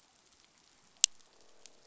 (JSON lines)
{"label": "biophony, croak", "recorder": "SoundTrap 500"}